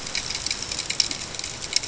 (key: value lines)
label: ambient
recorder: HydroMoth